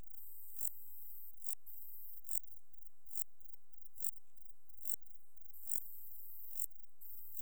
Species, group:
Euchorthippus elegantulus
Orthoptera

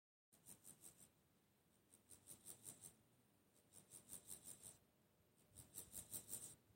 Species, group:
Chorthippus dorsatus
Orthoptera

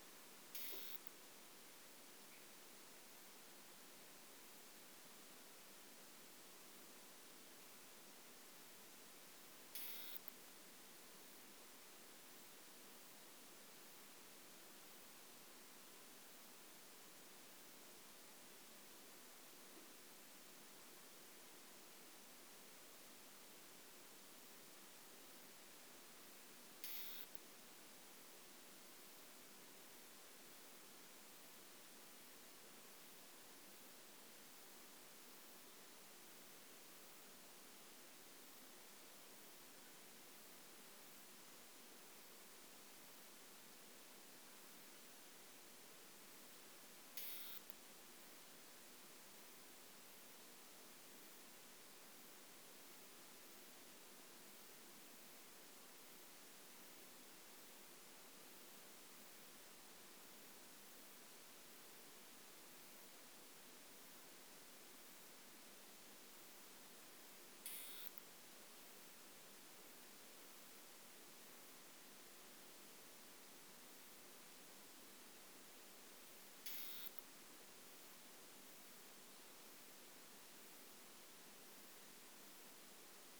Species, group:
Isophya modestior
Orthoptera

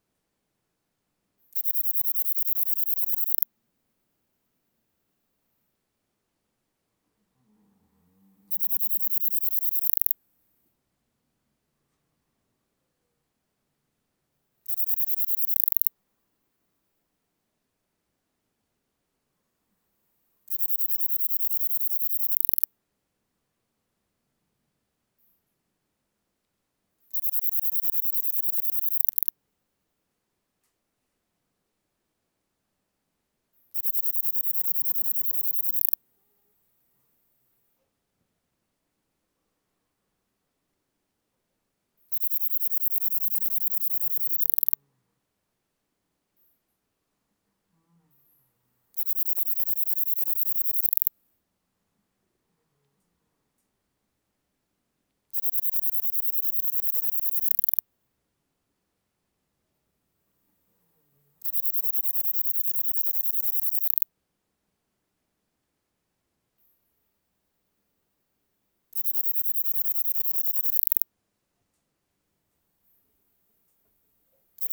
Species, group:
Platycleis affinis
Orthoptera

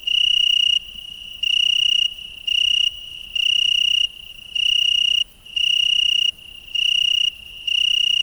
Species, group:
Oecanthus pellucens
Orthoptera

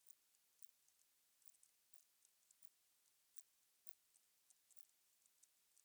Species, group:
Poecilimon ikariensis
Orthoptera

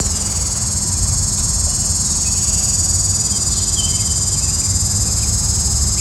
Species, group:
Neotibicen linnei
Cicadidae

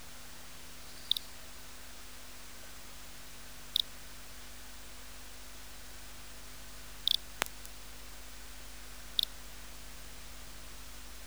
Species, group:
Eugryllodes pipiens
Orthoptera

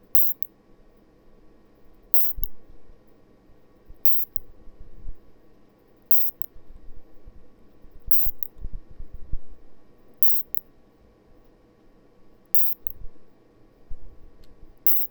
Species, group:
Isophya rhodopensis
Orthoptera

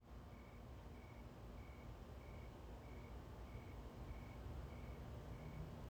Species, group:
Oecanthus rileyi
Orthoptera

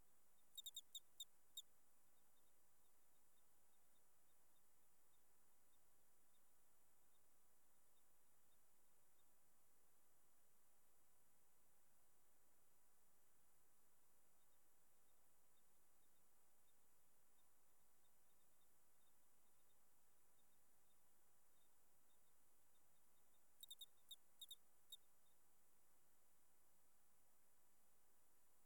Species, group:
Eugryllodes escalerae
Orthoptera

